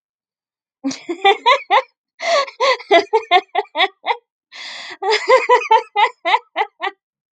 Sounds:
Laughter